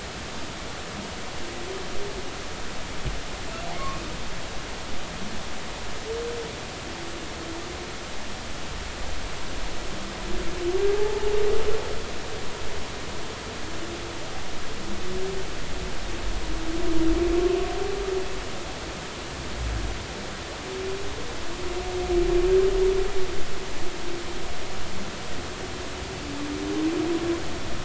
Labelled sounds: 10.9	11.3	humpback whale, 0.80 to 0.93 kHz

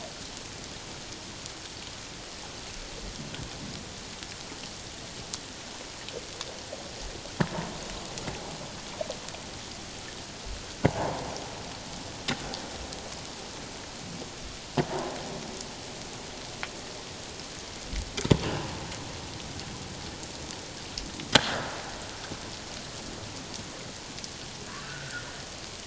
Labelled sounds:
24.8	25.2	humpback whale, 1.3 to 1.8 kHz

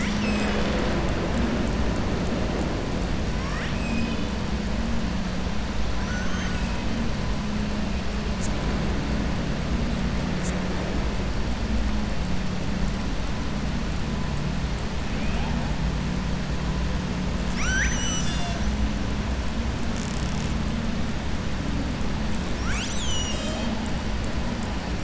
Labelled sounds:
3.4	4.3	killer whale, southern resident, 1.1 to 5.1 kHz
5.9	6.8	killer whale, southern resident, 1.0 to 7.7 kHz
17.4	18.7	killer whale, southern resident, 1.3 to 7.9 kHz

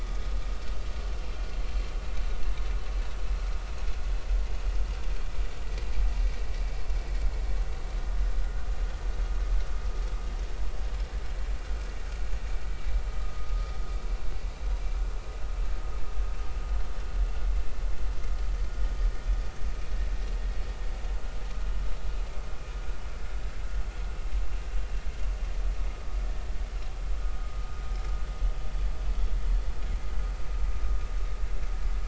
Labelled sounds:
14.1	14.5	vessel noise, 1.2 to 1.3 kHz

